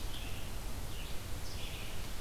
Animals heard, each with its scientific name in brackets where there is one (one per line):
Red-eyed Vireo (Vireo olivaceus)